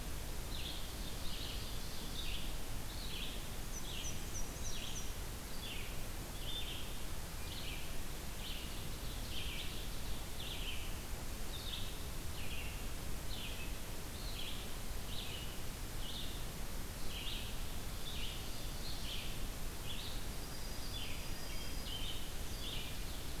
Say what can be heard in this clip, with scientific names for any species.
Vireo olivaceus, Seiurus aurocapilla, Mniotilta varia, Junco hyemalis, Hylocichla mustelina